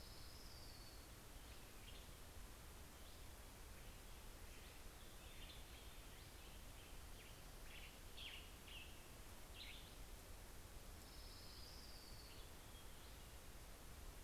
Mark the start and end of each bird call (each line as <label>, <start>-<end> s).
Swainson's Thrush (Catharus ustulatus), 0.0-0.6 s
Orange-crowned Warbler (Leiothlypis celata), 0.0-2.0 s
Western Tanager (Piranga ludoviciana), 4.6-10.8 s
Orange-crowned Warbler (Leiothlypis celata), 9.9-14.0 s